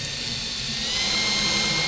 {"label": "anthrophony, boat engine", "recorder": "SoundTrap 500"}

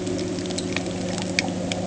{"label": "anthrophony, boat engine", "recorder": "HydroMoth"}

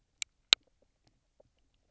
{"label": "biophony, knock croak", "recorder": "SoundTrap 300"}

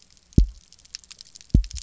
{"label": "biophony, double pulse", "recorder": "SoundTrap 300"}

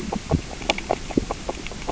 {"label": "biophony, grazing", "recorder": "SoundTrap 600 or HydroMoth"}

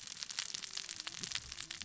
{"label": "biophony, cascading saw", "recorder": "SoundTrap 600 or HydroMoth"}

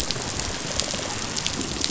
{"label": "biophony, rattle response", "recorder": "SoundTrap 500"}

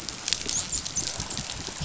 {"label": "biophony, dolphin", "recorder": "SoundTrap 500"}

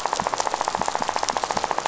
{"label": "biophony, rattle", "recorder": "SoundTrap 500"}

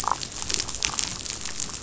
{"label": "biophony, damselfish", "recorder": "SoundTrap 500"}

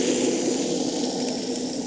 {"label": "anthrophony, boat engine", "recorder": "HydroMoth"}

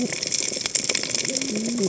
{"label": "biophony, cascading saw", "recorder": "HydroMoth"}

